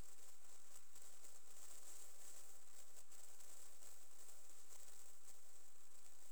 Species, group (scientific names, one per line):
Pholidoptera griseoaptera
Orthoptera